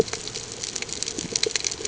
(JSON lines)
{"label": "ambient", "recorder": "HydroMoth"}